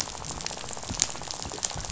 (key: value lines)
label: biophony, rattle
recorder: SoundTrap 500